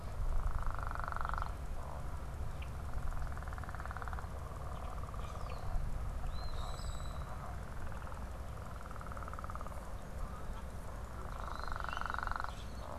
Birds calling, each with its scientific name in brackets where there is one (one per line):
Eastern Phoebe (Sayornis phoebe)
Common Grackle (Quiscalus quiscula)